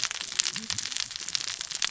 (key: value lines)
label: biophony, cascading saw
recorder: SoundTrap 600 or HydroMoth